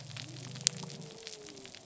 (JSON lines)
{"label": "biophony", "recorder": "SoundTrap 300"}